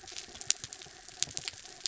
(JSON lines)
{"label": "anthrophony, mechanical", "recorder": "SoundTrap 300"}